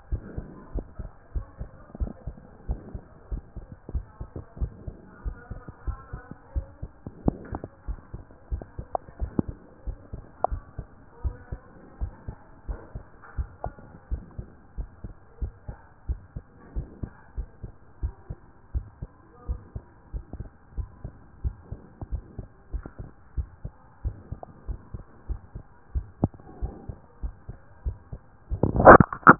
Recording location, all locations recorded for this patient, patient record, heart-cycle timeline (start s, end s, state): pulmonary valve (PV)
aortic valve (AV)+pulmonary valve (PV)+tricuspid valve (TV)+mitral valve (MV)
#Age: nan
#Sex: Male
#Height: 133.0 cm
#Weight: 35.2 kg
#Pregnancy status: False
#Murmur: Absent
#Murmur locations: nan
#Most audible location: nan
#Systolic murmur timing: nan
#Systolic murmur shape: nan
#Systolic murmur grading: nan
#Systolic murmur pitch: nan
#Systolic murmur quality: nan
#Diastolic murmur timing: nan
#Diastolic murmur shape: nan
#Diastolic murmur grading: nan
#Diastolic murmur pitch: nan
#Diastolic murmur quality: nan
#Outcome: Normal
#Campaign: 2014 screening campaign
0.00	0.10	unannotated
0.10	0.22	S1
0.22	0.36	systole
0.36	0.46	S2
0.46	0.74	diastole
0.74	0.86	S1
0.86	1.00	systole
1.00	1.10	S2
1.10	1.34	diastole
1.34	1.46	S1
1.46	1.60	systole
1.60	1.68	S2
1.68	2.00	diastole
2.00	2.12	S1
2.12	2.26	systole
2.26	2.36	S2
2.36	2.68	diastole
2.68	2.80	S1
2.80	2.94	systole
2.94	3.02	S2
3.02	3.30	diastole
3.30	3.42	S1
3.42	3.56	systole
3.56	3.66	S2
3.66	3.92	diastole
3.92	4.06	S1
4.06	4.20	systole
4.20	4.28	S2
4.28	4.60	diastole
4.60	4.72	S1
4.72	4.86	systole
4.86	4.96	S2
4.96	5.24	diastole
5.24	5.36	S1
5.36	5.50	systole
5.50	5.60	S2
5.60	5.86	diastole
5.86	5.98	S1
5.98	6.12	systole
6.12	6.22	S2
6.22	6.54	diastole
6.54	6.66	S1
6.66	6.82	systole
6.82	6.90	S2
6.90	7.24	diastole
7.24	7.36	S1
7.36	7.52	systole
7.52	7.62	S2
7.62	7.88	diastole
7.88	8.00	S1
8.00	8.12	systole
8.12	8.22	S2
8.22	8.50	diastole
8.50	8.64	S1
8.64	8.78	systole
8.78	8.86	S2
8.86	9.20	diastole
9.20	9.32	S1
9.32	9.46	systole
9.46	9.56	S2
9.56	9.86	diastole
9.86	9.98	S1
9.98	10.12	systole
10.12	10.22	S2
10.22	10.50	diastole
10.50	10.62	S1
10.62	10.78	systole
10.78	10.86	S2
10.86	11.24	diastole
11.24	11.36	S1
11.36	11.52	systole
11.52	11.60	S2
11.60	12.00	diastole
12.00	12.12	S1
12.12	12.26	systole
12.26	12.36	S2
12.36	12.68	diastole
12.68	12.80	S1
12.80	12.94	systole
12.94	13.04	S2
13.04	13.36	diastole
13.36	13.48	S1
13.48	13.64	systole
13.64	13.74	S2
13.74	14.10	diastole
14.10	14.22	S1
14.22	14.38	systole
14.38	14.48	S2
14.48	14.78	diastole
14.78	14.88	S1
14.88	15.04	systole
15.04	15.14	S2
15.14	15.40	diastole
15.40	15.52	S1
15.52	15.68	systole
15.68	15.78	S2
15.78	16.08	diastole
16.08	16.20	S1
16.20	16.34	systole
16.34	16.44	S2
16.44	16.74	diastole
16.74	16.88	S1
16.88	17.02	systole
17.02	17.10	S2
17.10	17.36	diastole
17.36	17.48	S1
17.48	17.62	systole
17.62	17.72	S2
17.72	18.02	diastole
18.02	18.14	S1
18.14	18.28	systole
18.28	18.38	S2
18.38	18.74	diastole
18.74	18.86	S1
18.86	19.02	systole
19.02	19.10	S2
19.10	19.48	diastole
19.48	19.60	S1
19.60	19.74	systole
19.74	19.84	S2
19.84	20.14	diastole
20.14	20.24	S1
20.24	20.38	systole
20.38	20.48	S2
20.48	20.76	diastole
20.76	20.88	S1
20.88	21.04	systole
21.04	21.12	S2
21.12	21.44	diastole
21.44	21.56	S1
21.56	21.70	systole
21.70	21.80	S2
21.80	22.12	diastole
22.12	22.22	S1
22.22	22.38	systole
22.38	22.48	S2
22.48	22.72	diastole
22.72	22.84	S1
22.84	23.00	systole
23.00	23.10	S2
23.10	23.36	diastole
23.36	23.48	S1
23.48	23.64	systole
23.64	23.72	S2
23.72	24.04	diastole
24.04	24.16	S1
24.16	24.30	systole
24.30	24.40	S2
24.40	24.68	diastole
24.68	24.80	S1
24.80	24.94	systole
24.94	25.04	S2
25.04	25.28	diastole
25.28	25.40	S1
25.40	25.54	systole
25.54	25.62	S2
25.62	25.94	diastole
25.94	26.06	S1
26.06	26.22	systole
26.22	26.32	S2
26.32	26.62	diastole
26.62	26.74	S1
26.74	26.88	systole
26.88	26.98	S2
26.98	27.22	diastole
27.22	27.34	S1
27.34	27.48	systole
27.48	27.58	S2
27.58	27.86	diastole
27.86	27.96	S1
27.96	28.12	systole
28.12	28.20	S2
28.20	28.50	diastole
28.50	29.39	unannotated